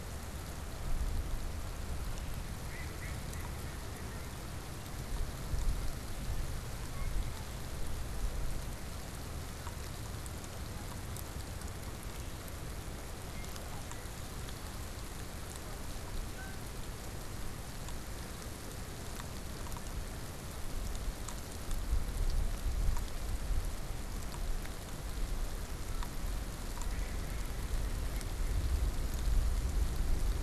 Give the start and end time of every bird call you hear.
[2.59, 4.59] Mallard (Anas platyrhynchos)
[6.79, 7.79] Red-winged Blackbird (Agelaius phoeniceus)
[16.19, 16.99] Canada Goose (Branta canadensis)
[26.89, 28.69] Mallard (Anas platyrhynchos)

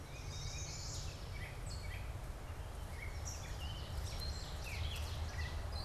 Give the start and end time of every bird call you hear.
[0.00, 0.91] Tufted Titmouse (Baeolophus bicolor)
[0.00, 5.85] Gray Catbird (Dumetella carolinensis)
[0.11, 1.41] Chestnut-sided Warbler (Setophaga pensylvanica)
[3.01, 5.71] Ovenbird (Seiurus aurocapilla)

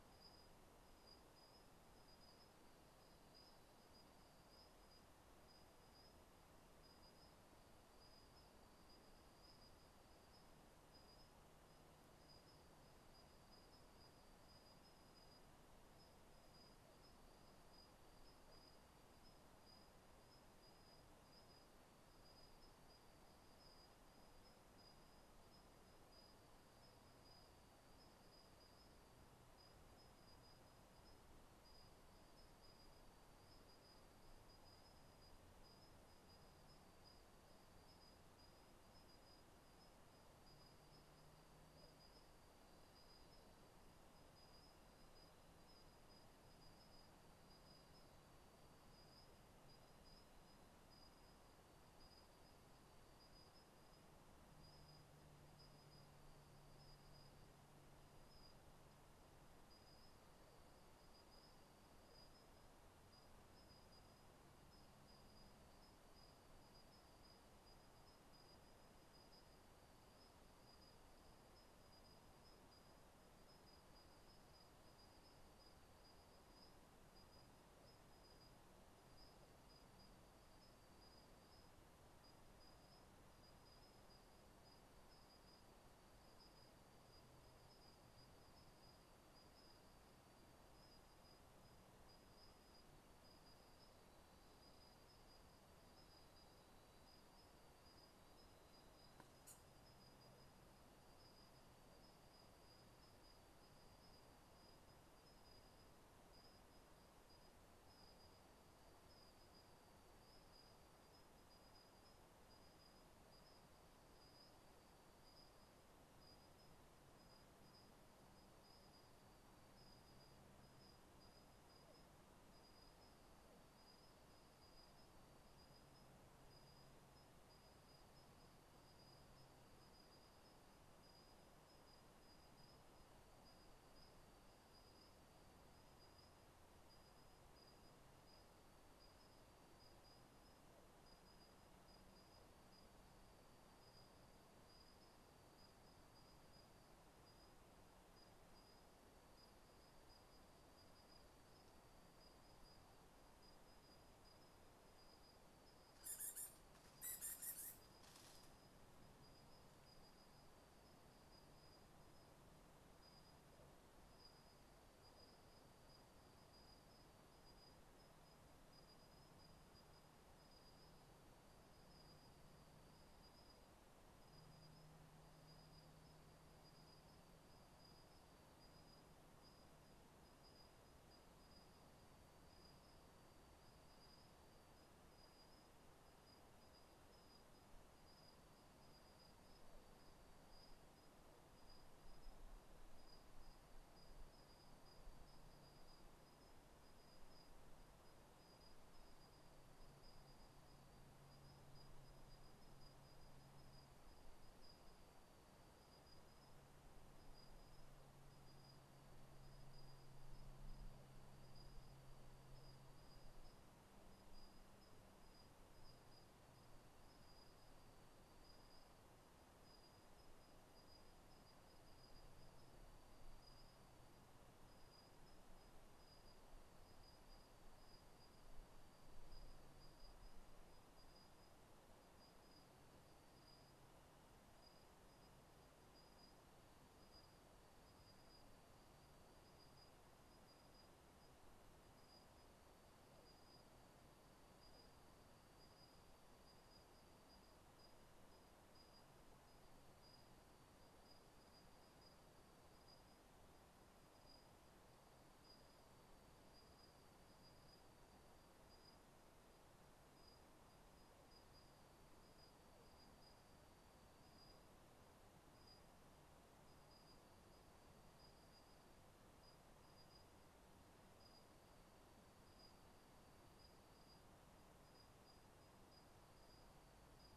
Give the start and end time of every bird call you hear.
[155.89, 157.79] unidentified bird

